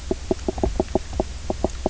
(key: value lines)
label: biophony, knock croak
recorder: SoundTrap 300